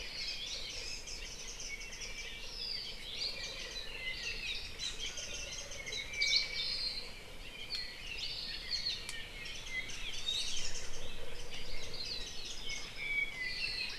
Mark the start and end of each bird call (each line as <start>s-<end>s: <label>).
0.0s-2.4s: Warbling White-eye (Zosterops japonicus)
1.6s-3.0s: Apapane (Himatione sanguinea)
3.1s-3.4s: Hawaii Creeper (Loxops mana)
3.1s-6.1s: Warbling White-eye (Zosterops japonicus)
5.7s-7.2s: Apapane (Himatione sanguinea)
6.2s-6.5s: Hawaii Creeper (Loxops mana)
8.2s-8.4s: Hawaii Creeper (Loxops mana)
8.7s-9.0s: Warbling White-eye (Zosterops japonicus)
9.4s-13.0s: Warbling White-eye (Zosterops japonicus)
10.2s-10.7s: Iiwi (Drepanis coccinea)
12.6s-14.0s: Iiwi (Drepanis coccinea)